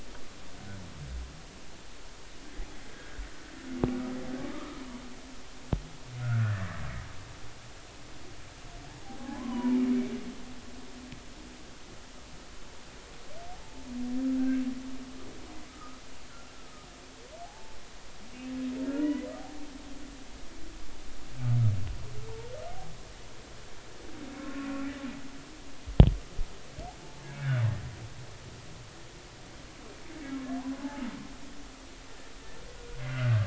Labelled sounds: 2.9	3.2	humpback whale, 1.4 to 1.7 kHz
4.5	4.8	humpback whale, 1.1 to 1.3 kHz
6.2	6.7	humpback whale, 1.2 to 1.9 kHz
10.3	10.8	humpback whale, 0.86 to 1.2 kHz
13.6	13.9	humpback whale, 0.86 to 0.93 kHz
14.4	14.6	humpback whale, 1.5 to 1.7 kHz
15.7	16.0	humpback whale, 1.2 to 1.3 kHz
17.4	17.8	humpback whale, 0.80 to 0.93 kHz
18.9	19.7	humpback whale, 0.80 to 3.0 kHz
22.3	22.5	humpback whale, 0.86 to 0.99 kHz
24.4	24.8	humpback whale, 1.3 to 2.6 kHz
27.2	27.6	humpback whale, 1.4 to 2.4 kHz
30.8	31.1	humpback whale, 0.80 to 0.96 kHz
33.0	33.4	humpback whale, 1.3 to 2.1 kHz

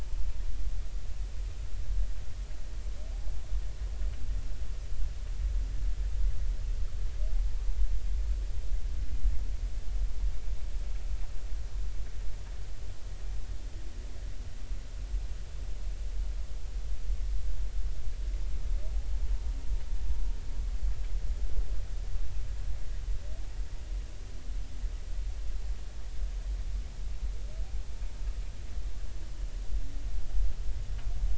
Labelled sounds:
18.9	19.2	humpback whale, 0.80 to 0.90 kHz

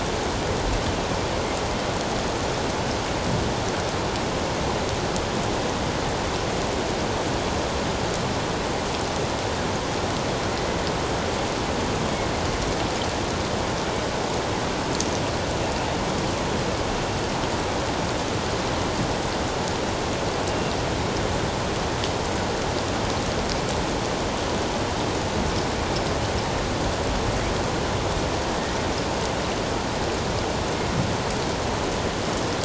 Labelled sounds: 20.5	20.7	killer whale, northern resident, 2.7 to 2.8 kHz

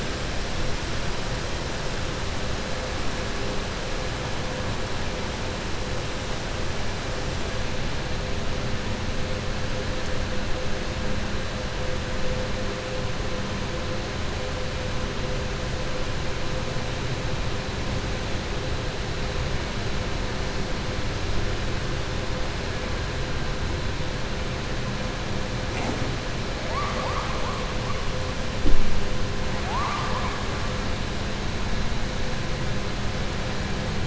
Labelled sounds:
26.6	27.6	killer whale, 0.57 to 2.3 kHz
29.6	30.4	killer whale, 0.71 to 3.0 kHz

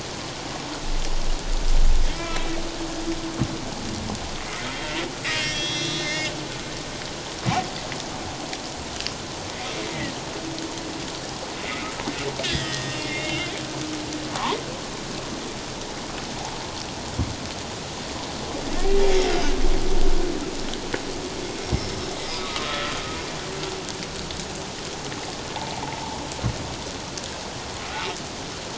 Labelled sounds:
2.1	2.5	humpback whale, 0.97 to 2.4 kHz
4.4	6.3	humpback whale, 1.7 to 4.3 kHz
12.4	13.5	humpback whale, 1.8 to 5.2 kHz
14.3	14.6	humpback whale, 0.78 to 1.2 kHz
19.3	19.6	humpback whale, 2.8 to 3.1 kHz
22.4	22.9	humpback whale, 1.1 to 1.4 kHz
25.8	26.2	humpback whale, 0.78 to 1.0 kHz

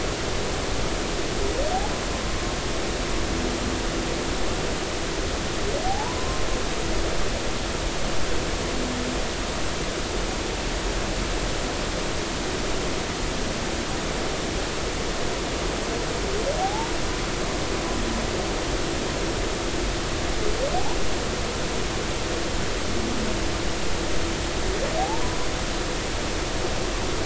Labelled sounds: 5.9	6.4	humpback whale, 0.80 to 1.1 kHz
16.6	16.9	humpback whale, 0.80 to 0.96 kHz
25.0	25.4	humpback whale, 0.80 to 1.1 kHz

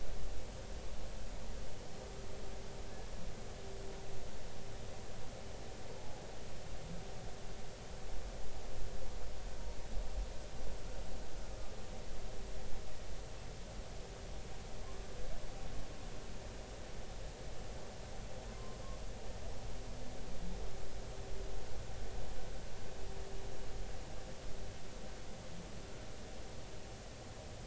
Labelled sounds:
6.0	6.2	humpback whale, 0.80 to 0.90 kHz
18.5	18.8	humpback whale, 0.99 to 1.1 kHz

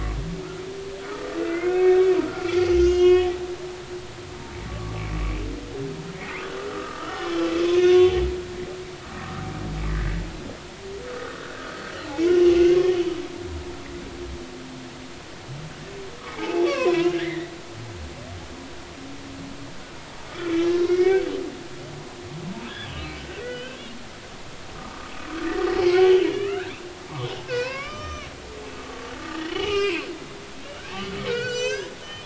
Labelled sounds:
1.6	3.3	humpback whale, 1.0 to 6.9 kHz
4.7	5.1	humpback whale, 1.0 to 1.2 kHz
6.2	7.4	humpback whale, 0.99 to 2.5 kHz
7.7	8.1	humpback whale, 1.1 to 6.2 kHz
11.0	11.6	humpback whale, 1.2 to 1.7 kHz
12.2	12.8	humpback whale, 0.99 to 3.0 kHz
16.3	17.5	humpback whale, 0.80 to 2.9 kHz
20.6	21.3	humpback whale, 1.4 to 4.1 kHz
22.7	23.8	humpback whale, 1.4 to 3.6 kHz
24.8	25.1	humpback whale, 0.99 to 1.3 kHz
25.8	26.6	humpback whale, 0.80 to 2.9 kHz
27.4	28.9	humpback whale, 0.93 to 6.2 kHz
29.2	30.0	humpback whale, 0.80 to 5.3 kHz
30.4	32.2	humpback whale, 1.4 to 6.4 kHz

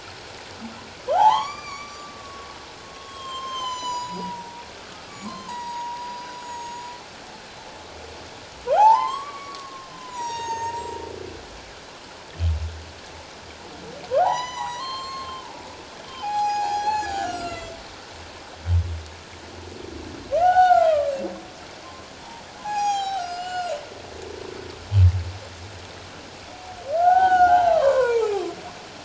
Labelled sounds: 1.1	2.5	humpback whale, 0.78 to 7.2 kHz
2.9	6.9	humpback whale, 0.84 to 8.0 kHz
8.7	11.0	humpback whale, 0.78 to 7.9 kHz
14.2	15.4	humpback whale, 0.78 to 7.5 kHz
16.2	17.8	humpback whale, 0.78 to 7.9 kHz
20.4	21.0	humpback whale, 0.78 to 4.5 kHz
22.2	23.7	humpback whale, 0.78 to 7.9 kHz
27.0	28.5	humpback whale, 0.78 to 3.1 kHz

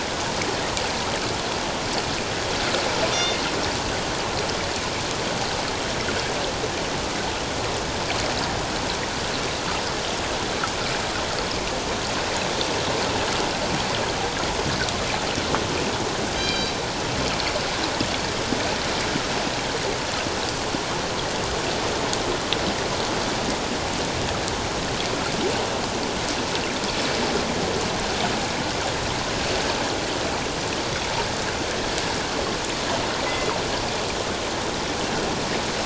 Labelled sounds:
3.1	3.4	killer whale, northern resident, G clan, 2.0 to 3.7 kHz
16.4	16.8	killer whale, northern resident, G clan, 2.3 to 4.8 kHz

